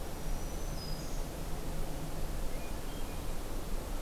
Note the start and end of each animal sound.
0.0s-1.3s: Black-throated Green Warbler (Setophaga virens)

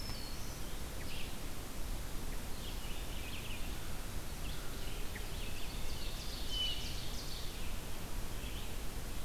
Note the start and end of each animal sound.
0.0s-1.0s: Black-throated Green Warbler (Setophaga virens)
0.0s-9.2s: Red-eyed Vireo (Vireo olivaceus)
5.1s-7.8s: Ovenbird (Seiurus aurocapilla)
6.3s-7.0s: Hermit Thrush (Catharus guttatus)

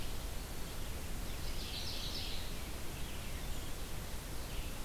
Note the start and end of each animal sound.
0.0s-4.8s: Red-eyed Vireo (Vireo olivaceus)
1.1s-2.7s: Mourning Warbler (Geothlypis philadelphia)

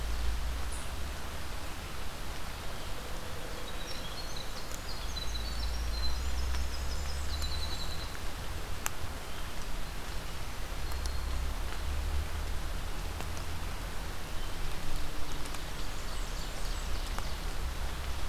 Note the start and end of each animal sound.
3.3s-8.6s: Winter Wren (Troglodytes hiemalis)
6.5s-8.1s: Blackburnian Warbler (Setophaga fusca)
10.3s-11.6s: Black-throated Green Warbler (Setophaga virens)
15.4s-17.1s: Blackburnian Warbler (Setophaga fusca)

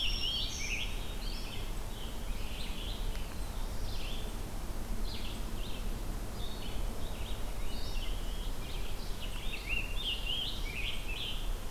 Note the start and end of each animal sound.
0.0s-0.9s: Black-throated Green Warbler (Setophaga virens)
0.0s-1.1s: Scarlet Tanager (Piranga olivacea)
0.7s-1.8s: Black-capped Chickadee (Poecile atricapillus)
1.1s-11.7s: Red-eyed Vireo (Vireo olivaceus)
3.0s-4.2s: Black-throated Blue Warbler (Setophaga caerulescens)
6.4s-8.5s: Black-capped Chickadee (Poecile atricapillus)
9.3s-11.7s: Scarlet Tanager (Piranga olivacea)

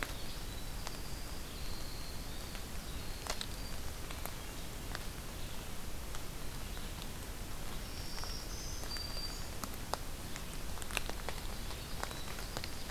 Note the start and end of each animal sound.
0.0s-4.3s: Winter Wren (Troglodytes hiemalis)
0.0s-11.9s: Red-eyed Vireo (Vireo olivaceus)
7.8s-9.6s: Black-throated Green Warbler (Setophaga virens)
11.7s-12.9s: Winter Wren (Troglodytes hiemalis)

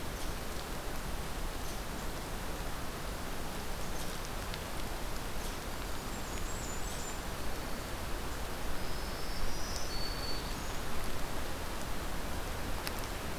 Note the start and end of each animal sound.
0.0s-4.2s: Red Squirrel (Tamiasciurus hudsonicus)
5.3s-7.1s: Red Squirrel (Tamiasciurus hudsonicus)
5.7s-7.2s: Blackburnian Warbler (Setophaga fusca)
8.6s-10.8s: Black-throated Green Warbler (Setophaga virens)

